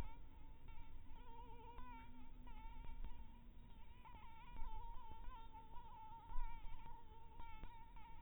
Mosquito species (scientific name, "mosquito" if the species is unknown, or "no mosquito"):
Anopheles maculatus